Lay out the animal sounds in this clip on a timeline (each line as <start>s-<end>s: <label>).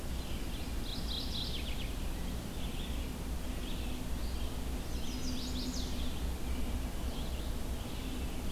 0.0s-8.5s: Red-eyed Vireo (Vireo olivaceus)
0.8s-1.9s: Mourning Warbler (Geothlypis philadelphia)
4.8s-5.9s: Chestnut-sided Warbler (Setophaga pensylvanica)